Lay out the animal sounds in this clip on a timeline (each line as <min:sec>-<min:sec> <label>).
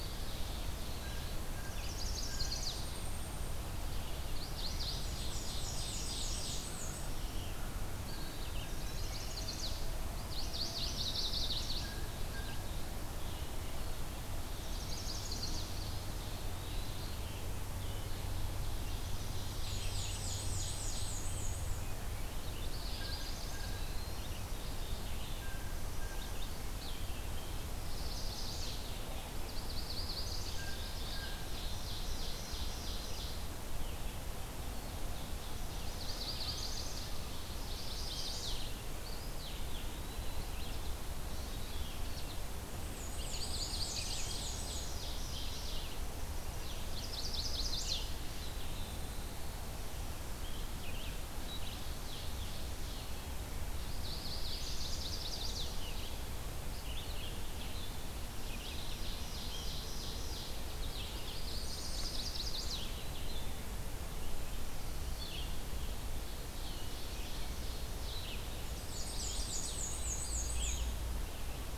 0:00.0-0:01.3 Ovenbird (Seiurus aurocapilla)
0:00.0-0:07.8 Red-eyed Vireo (Vireo olivaceus)
0:00.9-0:02.7 Blue Jay (Cyanocitta cristata)
0:01.6-0:02.8 Chestnut-sided Warbler (Setophaga pensylvanica)
0:02.6-0:03.7 Golden-crowned Kinglet (Regulus satrapa)
0:04.2-0:04.9 Chestnut-sided Warbler (Setophaga pensylvanica)
0:04.8-0:06.7 Ovenbird (Seiurus aurocapilla)
0:05.0-0:07.2 Black-and-white Warbler (Mniotilta varia)
0:08.0-0:09.3 Eastern Wood-Pewee (Contopus virens)
0:08.2-1:05.6 Red-eyed Vireo (Vireo olivaceus)
0:08.6-0:09.8 Chestnut-sided Warbler (Setophaga pensylvanica)
0:10.2-0:11.9 Chestnut-sided Warbler (Setophaga pensylvanica)
0:11.7-0:12.9 Blue Jay (Cyanocitta cristata)
0:14.4-0:15.7 Chestnut-sided Warbler (Setophaga pensylvanica)
0:14.6-0:16.2 Ovenbird (Seiurus aurocapilla)
0:15.8-0:17.3 Eastern Wood-Pewee (Contopus virens)
0:17.9-0:21.2 Ovenbird (Seiurus aurocapilla)
0:19.3-0:21.9 Black-and-white Warbler (Mniotilta varia)
0:22.6-0:23.7 Chestnut-sided Warbler (Setophaga pensylvanica)
0:22.9-0:24.4 Eastern Wood-Pewee (Contopus virens)
0:22.9-0:23.9 Blue Jay (Cyanocitta cristata)
0:25.2-0:26.4 Blue Jay (Cyanocitta cristata)
0:27.8-0:28.8 Chestnut-sided Warbler (Setophaga pensylvanica)
0:29.4-0:30.7 Chestnut-sided Warbler (Setophaga pensylvanica)
0:30.4-0:31.6 Blue Jay (Cyanocitta cristata)
0:31.3-0:33.5 Ovenbird (Seiurus aurocapilla)
0:34.9-0:37.5 Ovenbird (Seiurus aurocapilla)
0:35.8-0:37.2 Chestnut-sided Warbler (Setophaga pensylvanica)
0:37.5-0:38.7 Chestnut-sided Warbler (Setophaga pensylvanica)
0:37.8-0:38.7 Golden-crowned Kinglet (Regulus satrapa)
0:39.0-0:40.5 Eastern Wood-Pewee (Contopus virens)
0:42.7-0:45.0 Black-and-white Warbler (Mniotilta varia)
0:43.1-0:44.4 Chestnut-sided Warbler (Setophaga pensylvanica)
0:43.8-0:45.8 Ovenbird (Seiurus aurocapilla)
0:46.8-0:48.1 Chestnut-sided Warbler (Setophaga pensylvanica)
0:48.2-0:49.3 Eastern Wood-Pewee (Contopus virens)
0:51.5-0:53.2 Ovenbird (Seiurus aurocapilla)
0:53.8-0:55.7 Chestnut-sided Warbler (Setophaga pensylvanica)
0:58.7-1:00.7 Ovenbird (Seiurus aurocapilla)
1:00.7-1:03.0 Chestnut-sided Warbler (Setophaga pensylvanica)
1:01.5-1:02.3 Golden-crowned Kinglet (Regulus satrapa)
1:05.8-1:08.1 Ovenbird (Seiurus aurocapilla)
1:06.5-1:11.8 Red-eyed Vireo (Vireo olivaceus)
1:08.6-1:11.0 Black-and-white Warbler (Mniotilta varia)
1:08.8-1:09.8 Chestnut-sided Warbler (Setophaga pensylvanica)
1:09.0-1:10.4 Eastern Wood-Pewee (Contopus virens)